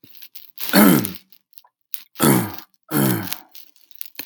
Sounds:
Throat clearing